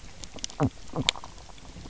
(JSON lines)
{"label": "biophony", "recorder": "SoundTrap 300"}